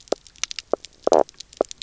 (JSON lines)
{"label": "biophony, knock croak", "recorder": "SoundTrap 300"}